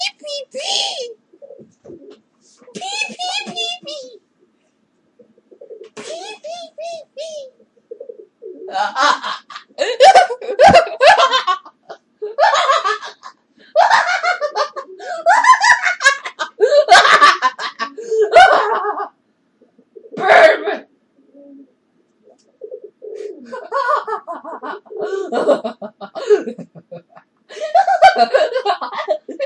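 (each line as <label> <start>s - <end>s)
A woman makes a high-pitched sound in a repeating pattern. 0.0s - 1.1s
A pigeon is cooing. 1.4s - 2.3s
A woman makes a high-pitched sound in a repeating pattern. 2.7s - 4.2s
A pigeon is cooing. 5.5s - 5.9s
A woman makes a high-pitched sound in a repeating pattern. 6.0s - 7.5s
A pigeon is cooing. 7.9s - 8.3s
A woman laughs loudly in a repeating pattern. 8.6s - 11.6s
A woman laughs loudly in a repeating pattern. 12.2s - 19.1s
A pigeon is cooing. 14.7s - 15.2s
A woman laughs loudly in a repeating pattern. 20.0s - 20.9s
A pigeon is cooing. 22.6s - 23.4s
A woman laughs loudly in a repeating pattern. 23.5s - 26.7s
A woman laughs loudly in a repeating pattern. 27.5s - 29.4s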